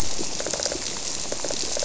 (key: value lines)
label: biophony, squirrelfish (Holocentrus)
recorder: SoundTrap 300